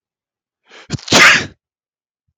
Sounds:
Sneeze